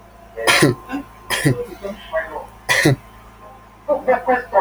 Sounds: Cough